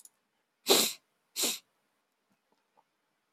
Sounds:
Sniff